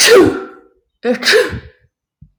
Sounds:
Sneeze